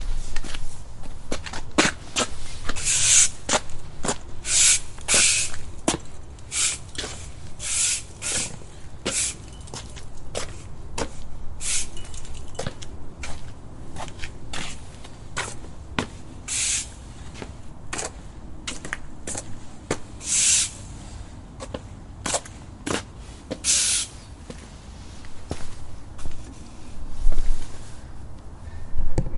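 Occasional footsteps as they move around to clean. 0:00.0 - 0:29.4
Someone is sweeping the floor with a broom. 0:00.0 - 0:29.4

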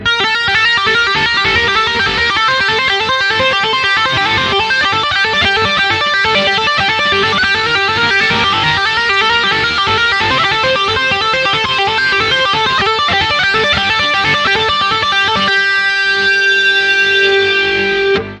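A finger taps an electric guitar melody. 0:00.0 - 0:15.5
An electric guitar note slowly decreases in frequency. 0:15.5 - 0:18.4

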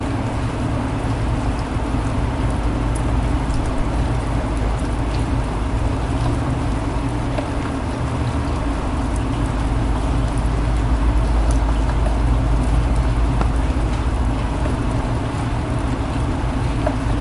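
Ambient rain sounds. 0:00.0 - 0:17.2

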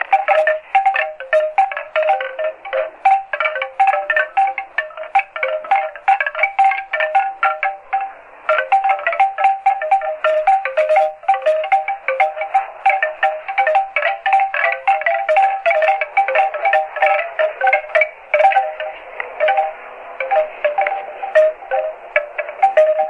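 Bamboo sticks hitting each other without rhythm. 0:00.0 - 0:08.1
Bamboo sticks rapidly hitting each other without rhythm. 0:08.3 - 0:18.9
Bamboo sticks hitting each other nearby. 0:19.1 - 0:23.1

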